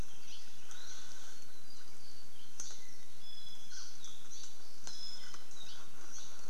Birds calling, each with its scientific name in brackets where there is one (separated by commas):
Apapane (Himatione sanguinea), Hawaii Creeper (Loxops mana), Iiwi (Drepanis coccinea)